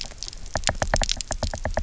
{"label": "biophony, knock", "recorder": "SoundTrap 300"}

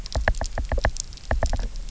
{"label": "biophony, knock", "recorder": "SoundTrap 300"}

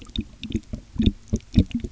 {"label": "geophony, waves", "recorder": "SoundTrap 300"}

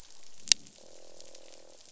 {"label": "biophony, croak", "recorder": "SoundTrap 500"}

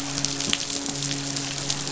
{"label": "biophony, midshipman", "recorder": "SoundTrap 500"}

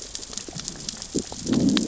{"label": "biophony, growl", "recorder": "SoundTrap 600 or HydroMoth"}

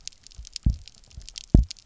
{"label": "biophony, double pulse", "recorder": "SoundTrap 300"}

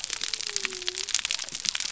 {"label": "biophony", "recorder": "SoundTrap 300"}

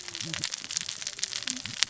{"label": "biophony, cascading saw", "recorder": "SoundTrap 600 or HydroMoth"}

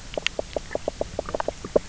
{"label": "biophony, knock croak", "recorder": "SoundTrap 300"}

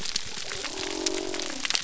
{"label": "biophony", "recorder": "SoundTrap 300"}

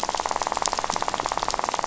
{"label": "biophony, rattle", "recorder": "SoundTrap 500"}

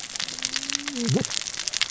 {"label": "biophony, cascading saw", "recorder": "SoundTrap 600 or HydroMoth"}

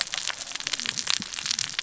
{"label": "biophony, cascading saw", "recorder": "SoundTrap 600 or HydroMoth"}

